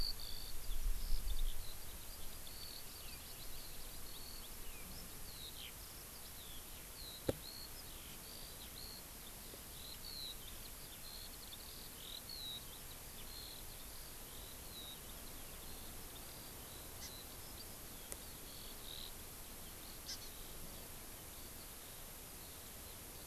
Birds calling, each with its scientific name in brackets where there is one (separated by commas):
Hawaii Amakihi (Chlorodrepanis virens), Eurasian Skylark (Alauda arvensis)